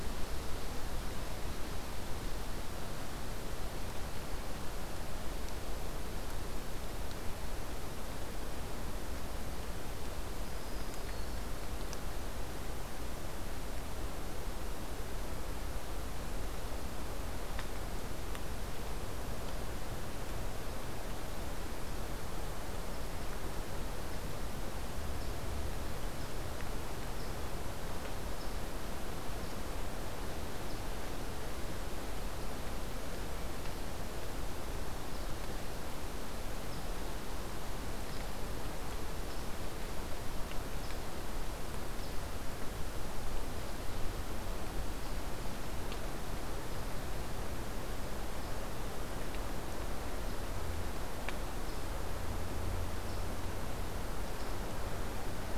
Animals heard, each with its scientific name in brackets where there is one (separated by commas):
unidentified call, Black-throated Green Warbler (Setophaga virens)